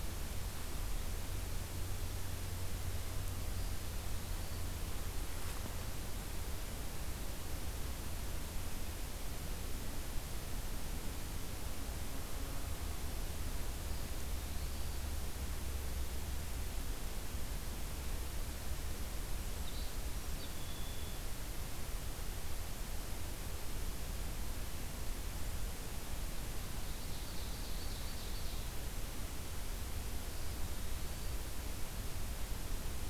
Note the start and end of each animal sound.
13.6s-15.3s: Eastern Wood-Pewee (Contopus virens)
19.5s-21.3s: Red-winged Blackbird (Agelaius phoeniceus)
26.7s-28.8s: Ovenbird (Seiurus aurocapilla)
30.1s-31.5s: Eastern Wood-Pewee (Contopus virens)

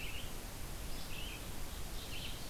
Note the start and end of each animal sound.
0.0s-2.5s: Red-eyed Vireo (Vireo olivaceus)
1.4s-2.5s: Ovenbird (Seiurus aurocapilla)

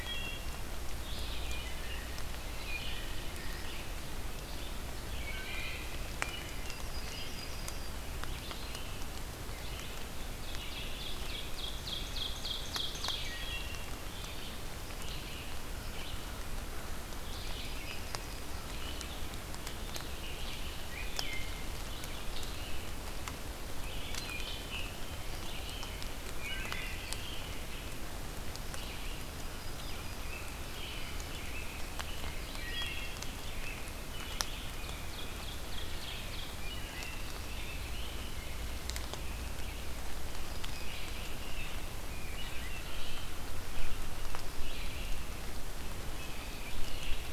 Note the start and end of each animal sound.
0.0s-0.6s: Wood Thrush (Hylocichla mustelina)
0.0s-47.3s: Red-eyed Vireo (Vireo olivaceus)
1.5s-3.7s: American Robin (Turdus migratorius)
5.0s-6.2s: Wood Thrush (Hylocichla mustelina)
6.1s-7.9s: Yellow-rumped Warbler (Setophaga coronata)
10.3s-12.3s: American Robin (Turdus migratorius)
10.3s-13.3s: Ovenbird (Seiurus aurocapilla)
12.8s-13.9s: Wood Thrush (Hylocichla mustelina)
15.6s-17.3s: American Crow (Corvus brachyrhynchos)
17.0s-18.8s: Yellow-rumped Warbler (Setophaga coronata)
20.9s-21.6s: Wood Thrush (Hylocichla mustelina)
22.0s-22.9s: American Robin (Turdus migratorius)
24.2s-25.0s: Wood Thrush (Hylocichla mustelina)
24.9s-28.0s: American Robin (Turdus migratorius)
26.4s-27.1s: Wood Thrush (Hylocichla mustelina)
29.1s-30.6s: Yellow-rumped Warbler (Setophaga coronata)
29.8s-32.5s: American Robin (Turdus migratorius)
32.3s-33.4s: Wood Thrush (Hylocichla mustelina)
33.3s-35.1s: American Robin (Turdus migratorius)
34.2s-36.3s: Ovenbird (Seiurus aurocapilla)
36.4s-37.3s: Wood Thrush (Hylocichla mustelina)
37.2s-40.0s: American Robin (Turdus migratorius)
39.9s-41.6s: Yellow-rumped Warbler (Setophaga coronata)
40.6s-43.4s: American Robin (Turdus migratorius)
46.2s-47.3s: American Robin (Turdus migratorius)

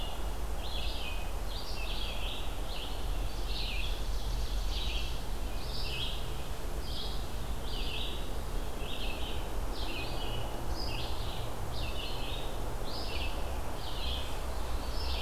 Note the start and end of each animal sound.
0.0s-15.2s: Red-eyed Vireo (Vireo olivaceus)
3.6s-5.3s: Ovenbird (Seiurus aurocapilla)

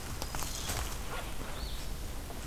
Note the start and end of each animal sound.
0.0s-0.9s: Black-throated Green Warbler (Setophaga virens)
1.3s-2.5s: Red-eyed Vireo (Vireo olivaceus)

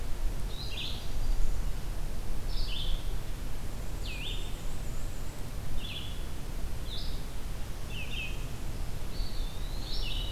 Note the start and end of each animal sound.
0.0s-10.3s: Red-eyed Vireo (Vireo olivaceus)
3.7s-5.5s: Black-and-white Warbler (Mniotilta varia)
7.4s-8.8s: Northern Parula (Setophaga americana)
8.9s-10.2s: Eastern Wood-Pewee (Contopus virens)

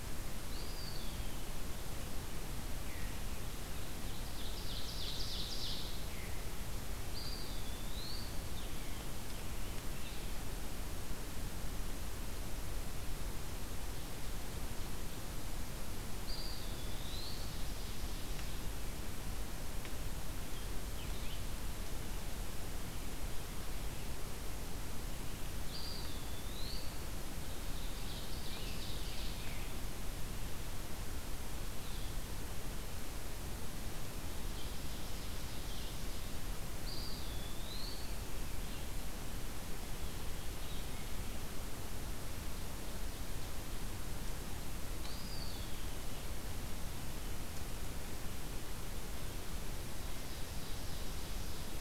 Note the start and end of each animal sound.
0.3s-1.5s: Eastern Wood-Pewee (Contopus virens)
3.7s-6.0s: Ovenbird (Seiurus aurocapilla)
7.0s-8.4s: Eastern Wood-Pewee (Contopus virens)
8.4s-10.4s: Scarlet Tanager (Piranga olivacea)
16.1s-17.7s: Eastern Wood-Pewee (Contopus virens)
16.8s-18.7s: Ovenbird (Seiurus aurocapilla)
20.8s-21.5s: Red-eyed Vireo (Vireo olivaceus)
25.6s-27.0s: Eastern Wood-Pewee (Contopus virens)
27.6s-29.5s: Ovenbird (Seiurus aurocapilla)
28.4s-29.9s: Scarlet Tanager (Piranga olivacea)
34.3s-36.3s: Ovenbird (Seiurus aurocapilla)
36.7s-38.1s: Eastern Wood-Pewee (Contopus virens)
44.9s-46.3s: Eastern Wood-Pewee (Contopus virens)
49.7s-51.8s: Ovenbird (Seiurus aurocapilla)

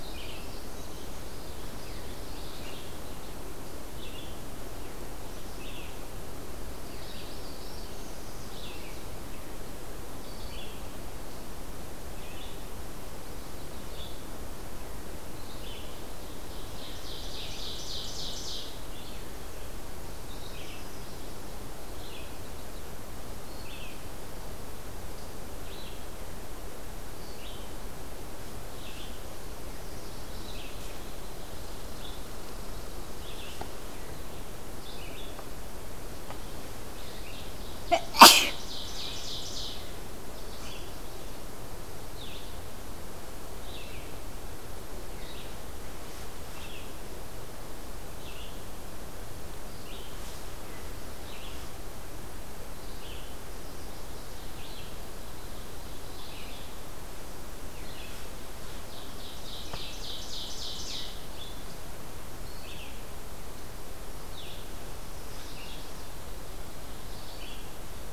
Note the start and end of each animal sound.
0.0s-1.5s: Common Yellowthroat (Geothlypis trichas)
0.0s-16.5s: Red-eyed Vireo (Vireo olivaceus)
6.8s-8.7s: Black-throated Blue Warbler (Setophaga caerulescens)
13.0s-14.1s: Chestnut-sided Warbler (Setophaga pensylvanica)
16.1s-18.8s: Ovenbird (Seiurus aurocapilla)
18.8s-68.1s: Red-eyed Vireo (Vireo olivaceus)
20.4s-21.5s: Chestnut-sided Warbler (Setophaga pensylvanica)
29.4s-30.5s: Chestnut-sided Warbler (Setophaga pensylvanica)
36.8s-39.9s: Ovenbird (Seiurus aurocapilla)
40.0s-41.5s: Chestnut-sided Warbler (Setophaga pensylvanica)
53.5s-54.4s: Chestnut-sided Warbler (Setophaga pensylvanica)
58.5s-61.2s: Ovenbird (Seiurus aurocapilla)
64.9s-66.1s: Chestnut-sided Warbler (Setophaga pensylvanica)

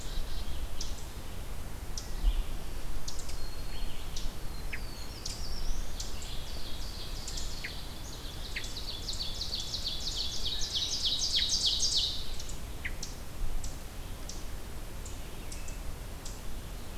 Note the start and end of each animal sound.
0.0s-0.6s: Black-capped Chickadee (Poecile atricapillus)
0.0s-17.0s: Ovenbird (Seiurus aurocapilla)
2.2s-4.2s: Red-eyed Vireo (Vireo olivaceus)
2.8s-3.9s: Black-throated Green Warbler (Setophaga virens)
4.3s-5.8s: Black-throated Blue Warbler (Setophaga caerulescens)

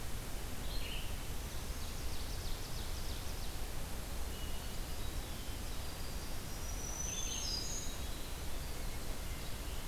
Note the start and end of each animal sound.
0.5s-1.2s: Red-eyed Vireo (Vireo olivaceus)
1.5s-3.7s: Ovenbird (Seiurus aurocapilla)
4.0s-9.9s: Winter Wren (Troglodytes hiemalis)
6.4s-8.1s: Black-throated Green Warbler (Setophaga virens)
6.9s-7.6s: Red-eyed Vireo (Vireo olivaceus)

